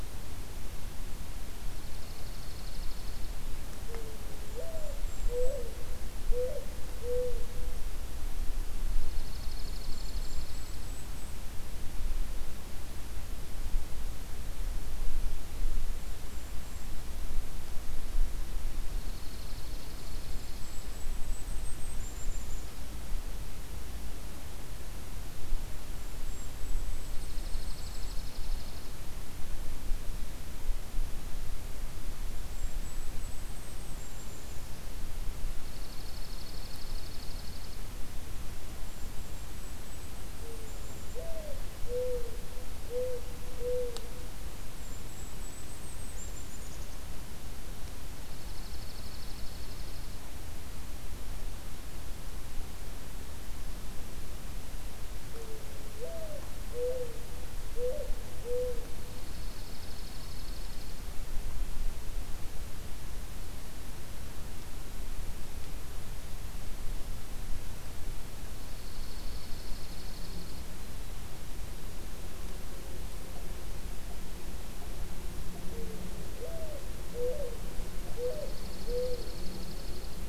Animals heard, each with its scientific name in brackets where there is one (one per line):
Mourning Dove (Zenaida macroura)
Golden-crowned Kinglet (Regulus satrapa)
Dark-eyed Junco (Junco hyemalis)